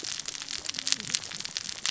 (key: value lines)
label: biophony, cascading saw
recorder: SoundTrap 600 or HydroMoth